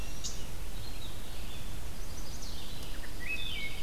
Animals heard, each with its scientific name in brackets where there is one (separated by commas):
Red-eyed Vireo (Vireo olivaceus), Chestnut-sided Warbler (Setophaga pensylvanica), unidentified call, Wood Thrush (Hylocichla mustelina)